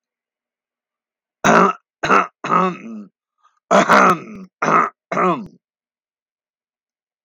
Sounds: Throat clearing